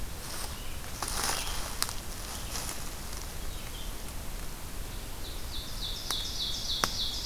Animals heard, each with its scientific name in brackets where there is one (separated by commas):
Red-eyed Vireo (Vireo olivaceus), Ovenbird (Seiurus aurocapilla)